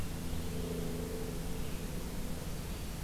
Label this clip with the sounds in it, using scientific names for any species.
forest ambience